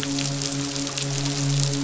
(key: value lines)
label: biophony, midshipman
recorder: SoundTrap 500